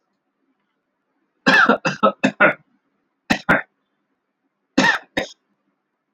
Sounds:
Cough